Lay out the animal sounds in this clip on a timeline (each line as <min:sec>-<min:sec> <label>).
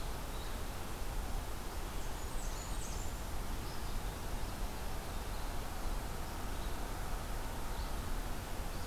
0:00.2-0:08.9 Red-eyed Vireo (Vireo olivaceus)
0:02.0-0:03.2 Blackburnian Warbler (Setophaga fusca)